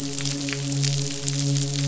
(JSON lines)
{"label": "biophony, midshipman", "recorder": "SoundTrap 500"}